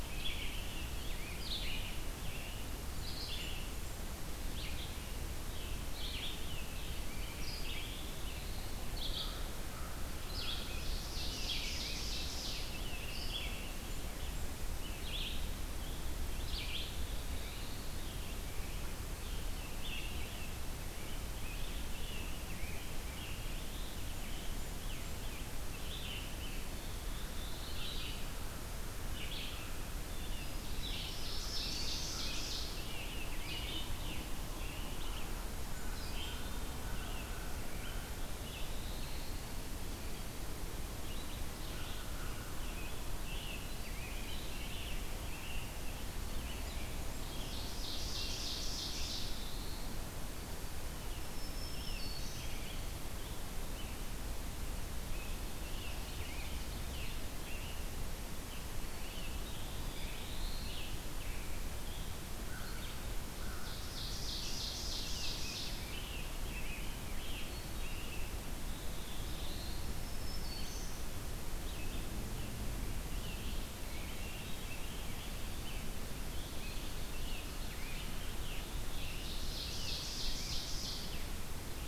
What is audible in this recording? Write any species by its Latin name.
Piranga olivacea, Vireo olivaceus, Setophaga caerulescens, Seiurus aurocapilla, Corvus brachyrhynchos, Pheucticus ludovicianus, Setophaga virens